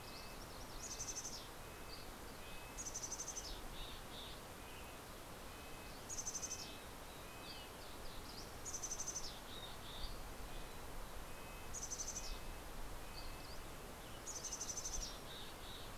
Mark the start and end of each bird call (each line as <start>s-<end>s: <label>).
0.0s-1.2s: MacGillivray's Warbler (Geothlypis tolmiei)
0.0s-7.9s: Red-breasted Nuthatch (Sitta canadensis)
0.7s-1.8s: Mountain Chickadee (Poecile gambeli)
1.9s-2.9s: Dusky Flycatcher (Empidonax oberholseri)
2.8s-4.5s: Mountain Chickadee (Poecile gambeli)
6.0s-7.2s: Mountain Chickadee (Poecile gambeli)
8.6s-10.2s: Mountain Chickadee (Poecile gambeli)
9.9s-11.1s: Dusky Flycatcher (Empidonax oberholseri)
10.1s-14.2s: Red-breasted Nuthatch (Sitta canadensis)
11.6s-12.7s: Mountain Chickadee (Poecile gambeli)
13.1s-13.8s: Dusky Flycatcher (Empidonax oberholseri)
14.0s-15.9s: Mountain Chickadee (Poecile gambeli)
15.1s-15.7s: Mountain Quail (Oreortyx pictus)